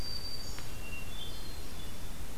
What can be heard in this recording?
Black-throated Green Warbler, Hermit Thrush